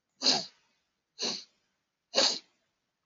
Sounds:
Sniff